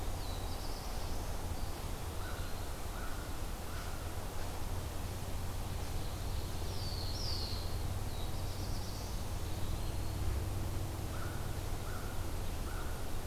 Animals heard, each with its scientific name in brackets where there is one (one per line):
Eastern Wood-Pewee (Contopus virens)
Black-throated Blue Warbler (Setophaga caerulescens)
American Crow (Corvus brachyrhynchos)